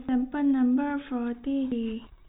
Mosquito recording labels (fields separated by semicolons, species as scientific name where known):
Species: no mosquito; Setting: cup